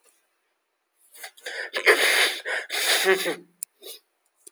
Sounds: Sneeze